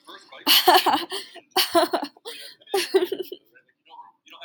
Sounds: Laughter